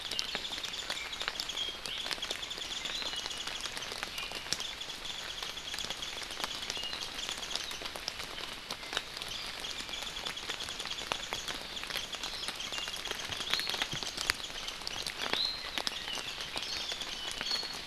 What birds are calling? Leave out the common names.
Drepanis coccinea, Himatione sanguinea